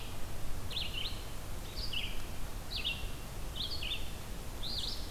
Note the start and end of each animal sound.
0.4s-5.1s: Red-eyed Vireo (Vireo olivaceus)

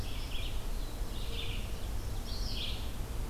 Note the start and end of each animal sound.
0.0s-3.3s: Red-eyed Vireo (Vireo olivaceus)

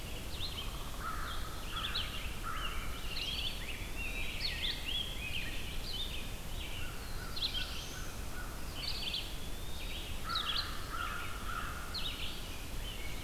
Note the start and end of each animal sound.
0.0s-13.2s: Red-eyed Vireo (Vireo olivaceus)
0.2s-1.1s: Downy Woodpecker (Dryobates pubescens)
0.9s-3.1s: American Crow (Corvus brachyrhynchos)
1.9s-6.4s: Rose-breasted Grosbeak (Pheucticus ludovicianus)
2.9s-4.6s: Eastern Wood-Pewee (Contopus virens)
6.6s-8.9s: American Crow (Corvus brachyrhynchos)
6.8s-8.2s: Black-throated Blue Warbler (Setophaga caerulescens)
8.7s-10.3s: Eastern Wood-Pewee (Contopus virens)
10.1s-12.2s: American Crow (Corvus brachyrhynchos)
12.6s-13.2s: Rose-breasted Grosbeak (Pheucticus ludovicianus)

